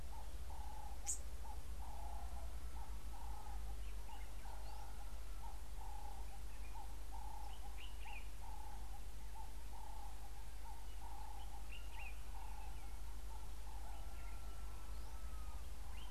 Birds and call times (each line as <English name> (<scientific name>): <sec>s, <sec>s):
Ring-necked Dove (Streptopelia capicola): 5.9s, 12.5s
Common Bulbul (Pycnonotus barbatus): 7.9s